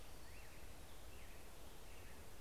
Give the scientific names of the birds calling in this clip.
Pheucticus melanocephalus